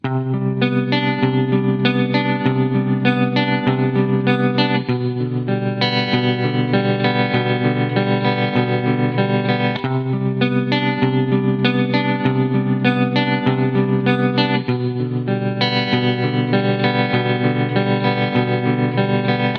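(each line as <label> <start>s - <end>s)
A melodic guitar tune with an indie-style sound. 0.0s - 19.6s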